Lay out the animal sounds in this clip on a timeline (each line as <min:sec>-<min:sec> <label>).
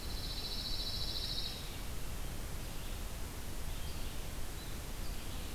0:00.0-0:01.6 Pine Warbler (Setophaga pinus)
0:00.0-0:05.5 Red-eyed Vireo (Vireo olivaceus)